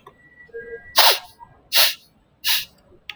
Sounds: Sniff